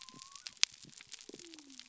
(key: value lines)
label: biophony
recorder: SoundTrap 300